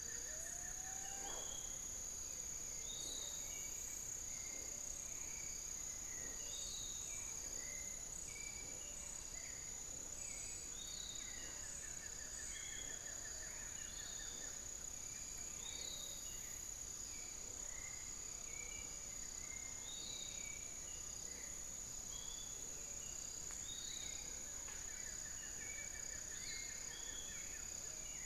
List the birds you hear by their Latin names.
Xiphorhynchus guttatus, Legatus leucophaius, Penelope jacquacu, Turdus hauxwelli